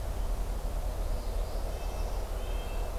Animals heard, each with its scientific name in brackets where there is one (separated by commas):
Northern Parula (Setophaga americana), Red-breasted Nuthatch (Sitta canadensis)